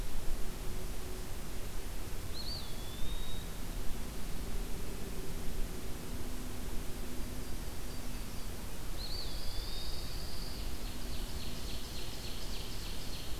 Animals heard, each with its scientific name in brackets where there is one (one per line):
Ovenbird (Seiurus aurocapilla)
Eastern Wood-Pewee (Contopus virens)
Pine Warbler (Setophaga pinus)
Yellow-rumped Warbler (Setophaga coronata)